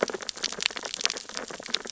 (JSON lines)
{"label": "biophony, sea urchins (Echinidae)", "recorder": "SoundTrap 600 or HydroMoth"}